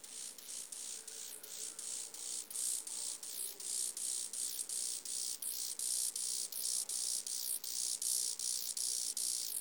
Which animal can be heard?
Chorthippus mollis, an orthopteran